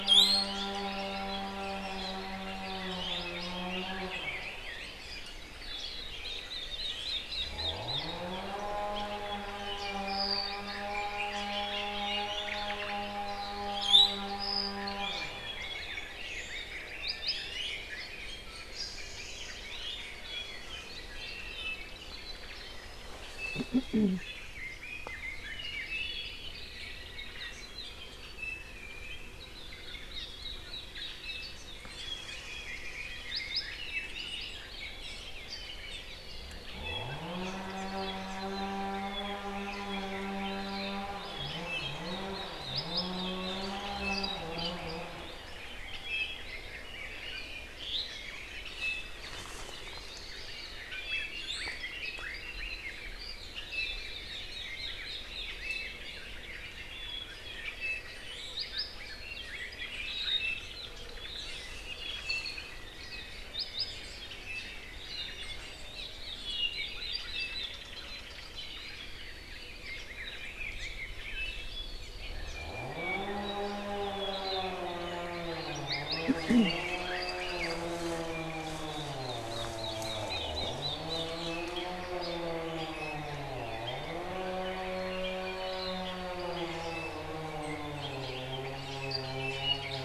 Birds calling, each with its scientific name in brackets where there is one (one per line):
Apapane (Himatione sanguinea)
Hawaii Akepa (Loxops coccineus)
Hawaii Creeper (Loxops mana)
Omao (Myadestes obscurus)
Red-billed Leiothrix (Leiothrix lutea)
Iiwi (Drepanis coccinea)